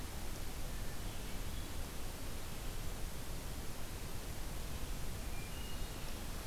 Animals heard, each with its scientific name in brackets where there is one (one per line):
Hermit Thrush (Catharus guttatus)